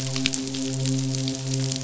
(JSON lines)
{"label": "biophony, midshipman", "recorder": "SoundTrap 500"}